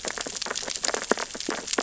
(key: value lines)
label: biophony, sea urchins (Echinidae)
recorder: SoundTrap 600 or HydroMoth